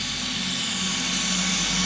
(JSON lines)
{"label": "anthrophony, boat engine", "recorder": "SoundTrap 500"}